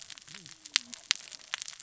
{"label": "biophony, cascading saw", "recorder": "SoundTrap 600 or HydroMoth"}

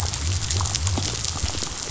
{"label": "biophony", "recorder": "SoundTrap 500"}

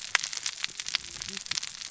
{"label": "biophony, cascading saw", "recorder": "SoundTrap 600 or HydroMoth"}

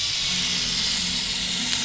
{"label": "anthrophony, boat engine", "recorder": "SoundTrap 500"}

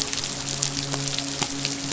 {"label": "biophony, midshipman", "recorder": "SoundTrap 500"}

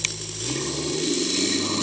{"label": "anthrophony, boat engine", "recorder": "HydroMoth"}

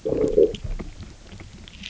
{"label": "biophony, low growl", "recorder": "SoundTrap 300"}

